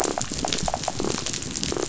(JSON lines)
{"label": "biophony", "recorder": "SoundTrap 500"}